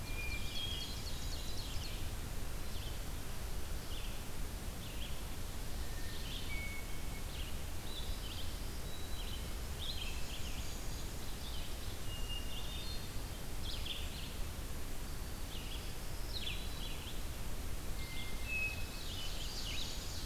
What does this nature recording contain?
Hermit Thrush, Red-eyed Vireo, Ovenbird, Black-throated Green Warbler